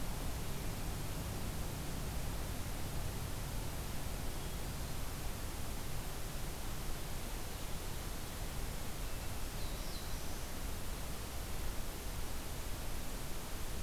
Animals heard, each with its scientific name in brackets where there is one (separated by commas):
Black-throated Blue Warbler (Setophaga caerulescens), Hermit Thrush (Catharus guttatus)